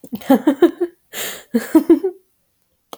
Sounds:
Laughter